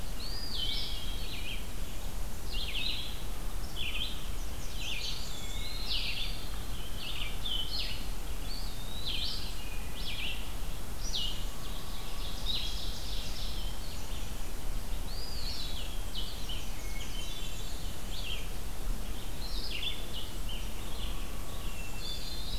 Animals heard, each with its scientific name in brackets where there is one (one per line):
Red-eyed Vireo (Vireo olivaceus)
Black-throated Blue Warbler (Setophaga caerulescens)
Ovenbird (Seiurus aurocapilla)
Eastern Wood-Pewee (Contopus virens)
Hermit Thrush (Catharus guttatus)
Blackburnian Warbler (Setophaga fusca)